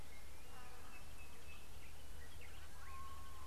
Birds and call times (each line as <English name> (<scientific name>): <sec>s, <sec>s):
Sulphur-breasted Bushshrike (Telophorus sulfureopectus): 1.2s